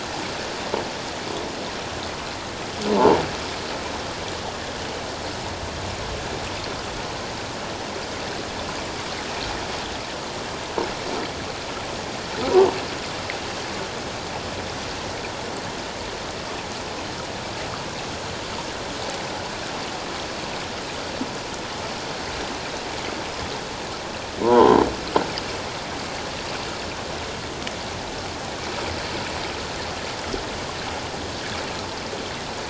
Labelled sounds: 24.4	24.8	croaking sound likely from a nearby submerged object, 0.81 to 3.3 kHz

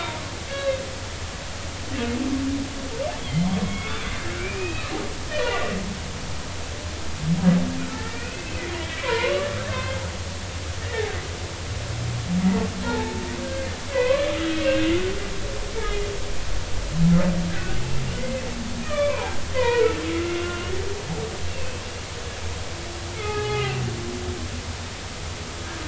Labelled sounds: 0.5	0.8	humpback whale, 1.6 to 3.9 kHz
3.2	4.9	humpback whale, 2.1 to 3.4 kHz
5.3	5.8	humpback whale, 1.8 to 2.1 kHz
7.9	10.0	humpback whale, 0.86 to 4.2 kHz
10.8	11.1	humpback whale, 1.7 to 2.0 kHz
12.8	13.7	humpback whale, 0.83 to 1.7 kHz
13.9	14.9	humpback whale, 0.93 to 2.2 kHz
17.5	17.8	humpback whale, 1.4 to 1.7 kHz
18.2	18.4	humpback whale, 2.0 to 2.1 kHz
18.8	20.7	humpback whale, 0.80 to 2.9 kHz
21.5	21.8	humpback whale, 2.5 to 2.8 kHz
23.2	23.8	humpback whale, 0.80 to 3.0 kHz

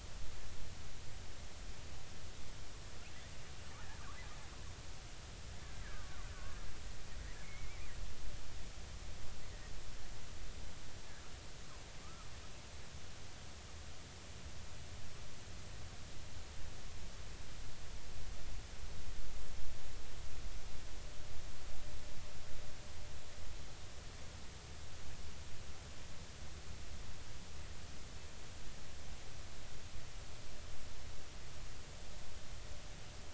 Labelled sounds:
5.7	6.2	killer whale, Bigg's (transient), 1.1 to 2.1 kHz
7.3	7.8	killer whale, Bigg's (transient), 1.4 to 2.4 kHz

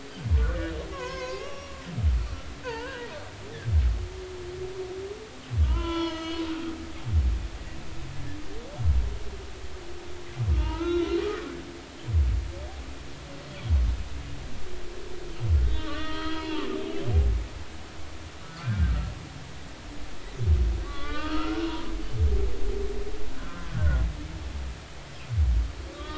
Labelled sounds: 0.3	0.6	humpback whale, 0.90 to 1.6 kHz
0.9	1.8	humpback whale, 0.93 to 6.5 kHz
2.6	3.1	humpback whale, 0.83 to 1.7 kHz
5.6	6.4	humpback whale, 0.86 to 6.3 kHz
10.5	11.2	humpback whale, 0.86 to 3.9 kHz
15.6	16.6	humpback whale, 0.86 to 3.8 kHz
18.4	18.9	humpback whale, 1.3 to 1.5 kHz
20.8	21.9	humpback whale, 0.93 to 3.4 kHz
23.3	24.0	humpback whale, 1.3 to 1.7 kHz
25.9	26.1	humpback whale, 1.1 to 1.3 kHz

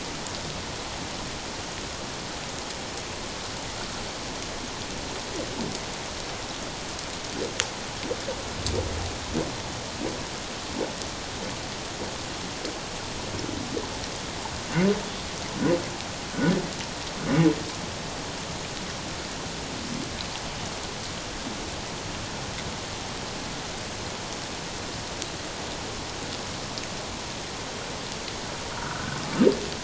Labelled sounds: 28.7	29.2	humpback whale, 1.2 to 1.6 kHz

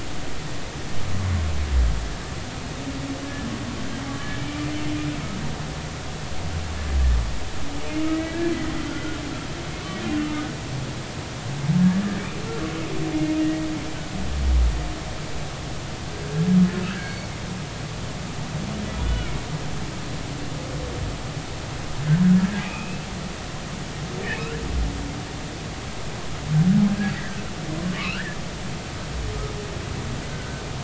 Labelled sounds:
3.2	3.5	humpback whale, 1.6 to 1.8 kHz
4.1	4.4	humpback whale, 1.6 to 1.8 kHz
10.2	10.5	humpback whale, 1.2 to 1.3 kHz
13.4	13.7	humpback whale, 1.8 to 2.0 kHz
16.8	17.3	humpback whale, 1.2 to 4.5 kHz
22.6	23.1	humpback whale, 2.2 to 2.7 kHz
24.3	24.5	humpback whale, 2.1 to 2.6 kHz
27.1	27.4	humpback whale, 1.5 to 2.0 kHz
28.0	28.4	humpback whale, 1.0 to 3.0 kHz
30.3	30.6	humpback whale, 1.4 to 1.6 kHz

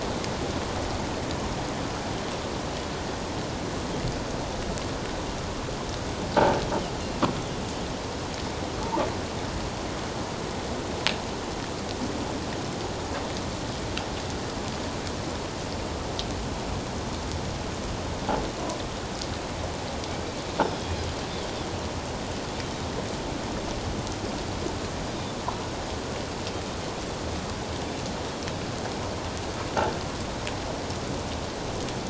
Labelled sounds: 20.7	21.0	Pacific white-sided dolphin, 3.2 to 3.4 kHz

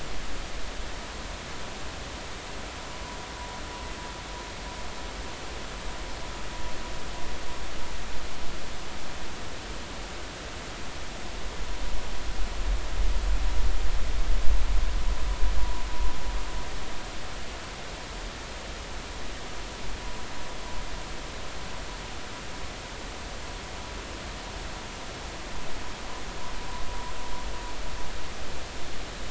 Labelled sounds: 15.6	15.8	vessel noise, 0.90 to 1.0 kHz

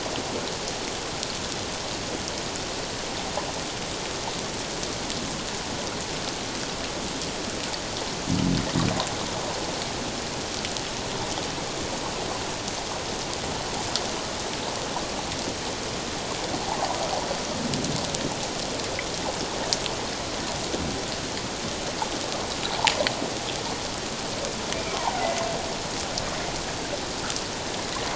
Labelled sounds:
24.9	25.3	humpback whale, 0.78 to 1.1 kHz

